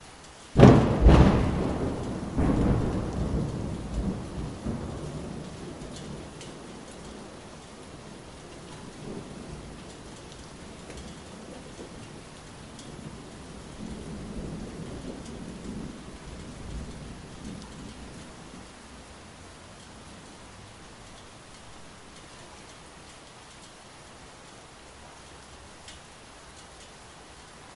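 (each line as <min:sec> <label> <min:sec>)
0:00.4 A thunderstorm. 0:04.6
0:05.9 Rain drops fall with very quiet thunder in the background. 0:13.4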